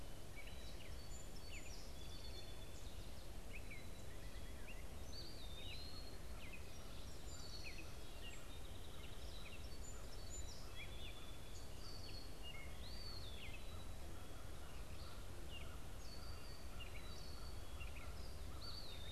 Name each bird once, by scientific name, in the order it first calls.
Dumetella carolinensis, Melospiza melodia, Contopus virens